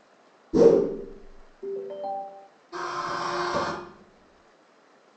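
At 0.52 seconds, there is a whoosh. Then, at 1.62 seconds, you can hear a telephone ringtone. Finally, at 2.72 seconds, the sound of a vacuum cleaner on a tiled floor is audible.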